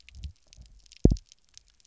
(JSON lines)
{"label": "biophony, double pulse", "recorder": "SoundTrap 300"}